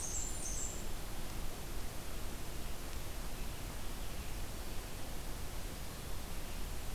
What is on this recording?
Blackburnian Warbler, Red-eyed Vireo